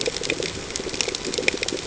{"label": "ambient", "recorder": "HydroMoth"}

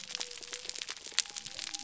{"label": "biophony", "recorder": "SoundTrap 300"}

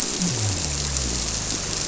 {"label": "biophony", "recorder": "SoundTrap 300"}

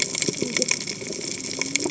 {"label": "biophony, cascading saw", "recorder": "HydroMoth"}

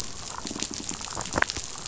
{"label": "biophony", "recorder": "SoundTrap 500"}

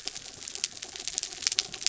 {"label": "anthrophony, mechanical", "recorder": "SoundTrap 300"}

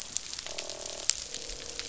{"label": "biophony, croak", "recorder": "SoundTrap 500"}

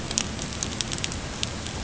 {"label": "ambient", "recorder": "HydroMoth"}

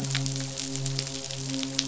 {"label": "biophony, midshipman", "recorder": "SoundTrap 500"}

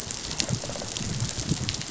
{"label": "biophony, rattle response", "recorder": "SoundTrap 500"}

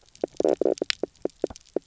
{"label": "biophony, knock croak", "recorder": "SoundTrap 300"}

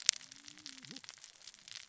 {"label": "biophony, cascading saw", "recorder": "SoundTrap 600 or HydroMoth"}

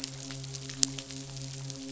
{"label": "biophony, midshipman", "recorder": "SoundTrap 500"}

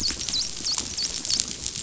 {"label": "biophony, dolphin", "recorder": "SoundTrap 500"}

